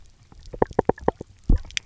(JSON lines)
{"label": "biophony, knock", "recorder": "SoundTrap 300"}